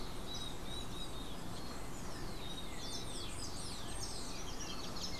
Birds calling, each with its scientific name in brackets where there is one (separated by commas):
Golden-faced Tyrannulet (Zimmerius chrysops)